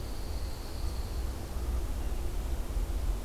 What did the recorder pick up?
Pine Warbler